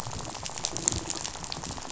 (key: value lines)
label: biophony, rattle
recorder: SoundTrap 500